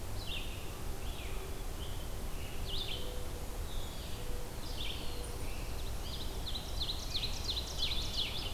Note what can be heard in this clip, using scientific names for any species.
Vireo olivaceus, Zenaida macroura, Setophaga caerulescens, Seiurus aurocapilla